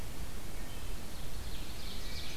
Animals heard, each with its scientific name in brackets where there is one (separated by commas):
Wood Thrush (Hylocichla mustelina), Ovenbird (Seiurus aurocapilla)